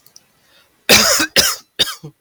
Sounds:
Cough